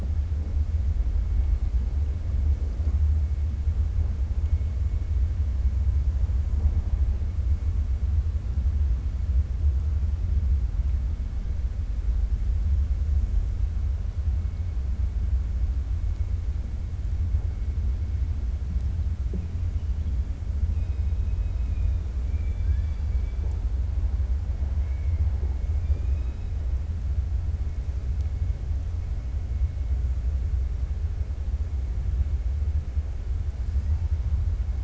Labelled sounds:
20.7	22.0	killer whale, 2.2 to 3.3 kHz
24.8	25.2	killer whale, 1.7 to 2.8 kHz

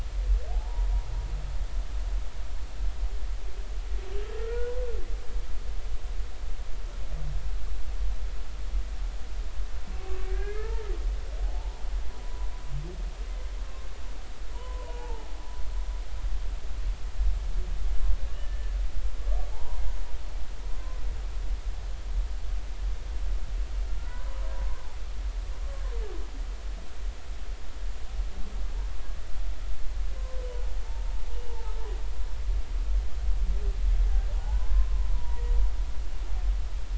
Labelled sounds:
0.5	0.9	humpback whale, 0.80 to 1.0 kHz
4.3	4.7	humpback whale, 1.3 to 2.0 kHz
10.3	10.8	humpback whale, 1.2 to 2.2 kHz
11.4	12.5	humpback whale, 0.80 to 1.0 kHz
14.5	15.3	humpback whale, 0.80 to 1.1 kHz
18.3	18.7	humpback whale, 1.7 to 1.8 kHz
19.5	19.8	humpback whale, 0.80 to 1.1 kHz
20.7	21.0	humpback whale, 0.99 to 1.1 kHz
24.0	24.4	humpback whale, 0.93 to 1.6 kHz
31.5	31.7	humpback whale, 0.83 to 0.99 kHz
34.3	35.4	humpback whale, 0.80 to 1.7 kHz

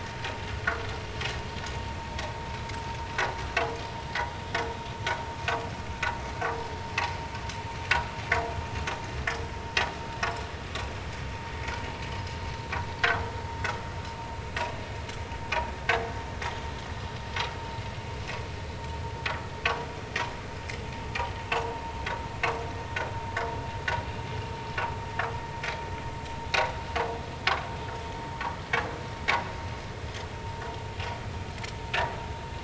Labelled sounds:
13.9	14.2	vessel noise, 4.0 to 4.2 kHz

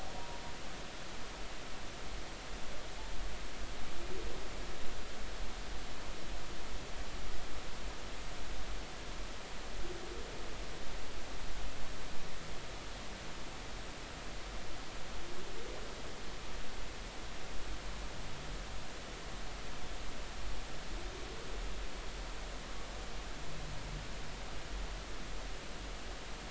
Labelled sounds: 0.1	0.4	humpback whale, 0.90 to 0.99 kHz

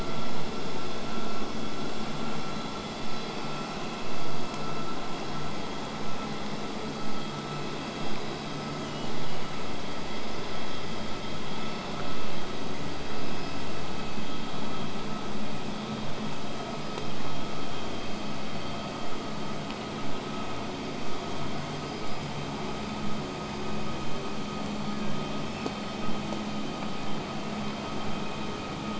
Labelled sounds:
8.5	9.4	killer whale, southern resident, whistle, 5.6 to 6.7 kHz
14.0	19.0	vessel noise, 0 to 8.0 kHz
24.6	25.8	killer whale, southern resident, 1.4 to 8.0 kHz

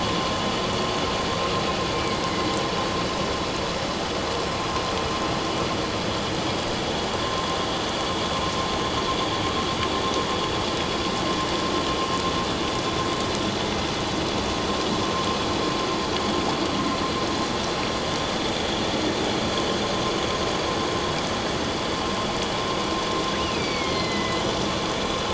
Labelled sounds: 23.4	24.4	killer whale, northern resident, A clan, AA subclan, call N04, 1.9 to 4.9 kHz

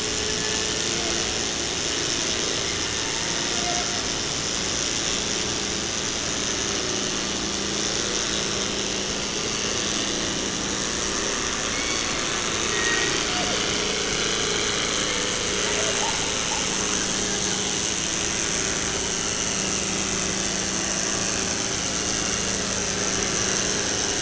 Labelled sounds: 0.0	1.2	killer whale, 0.44 to 2.2 kHz
2.8	3.9	killer whale, 0.50 to 2.3 kHz
11.6	12.3	killer whale, 1.0 to 4.7 kHz
12.6	13.6	killer whale, southern resident, J pod, call S01, 0.43 to 3.0 kHz

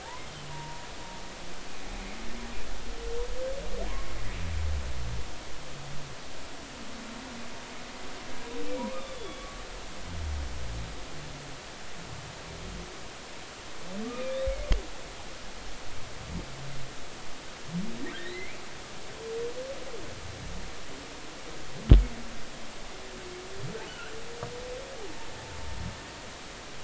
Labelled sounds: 0.0	0.9	humpback whale, 0.80 to 1.1 kHz
3.9	4.1	humpback whale, 0.96 to 1.1 kHz
8.8	9.6	humpback whale, 0.90 to 3.7 kHz
14.1	14.4	humpback whale, 2.3 to 2.5 kHz
18.2	18.6	humpback whale, 1.7 to 4.1 kHz
23.9	24.1	humpback whale, 2.6 to 3.0 kHz

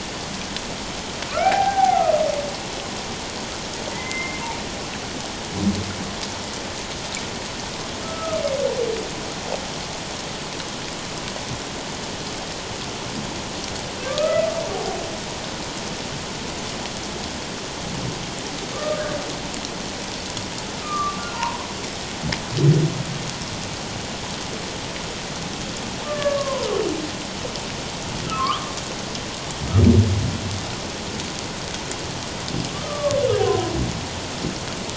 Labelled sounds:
1.3	2.2	humpback whale, 0.78 to 1.7 kHz
3.9	4.4	humpback whale, 0.81 to 2.2 kHz
8.0	8.4	humpback whale, 1.2 to 1.4 kHz
14.1	14.4	humpback whale, 1.1 to 1.4 kHz
18.7	19.0	humpback whale, 1.1 to 1.3 kHz
20.8	21.6	humpback whale, 0.88 to 1.5 kHz
26.0	26.7	humpback whale, 0.91 to 2.9 kHz
28.3	28.7	humpback whale, 1.0 to 1.4 kHz
32.7	33.2	humpback whale, 1.0 to 1.3 kHz

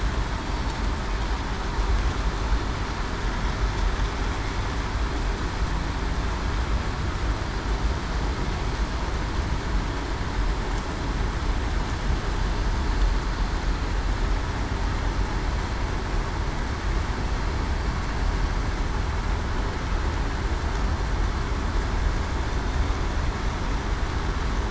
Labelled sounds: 0.4	0.8	killer whale, southern resident, 4.4 to 4.7 kHz

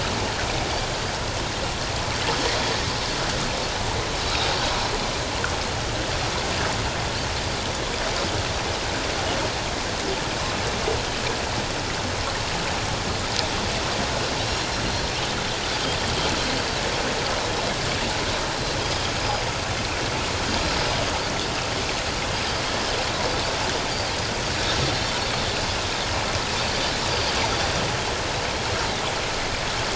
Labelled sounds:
18.5	19.1	Pacific white-sided dolphin, 4.0 to 5.2 kHz

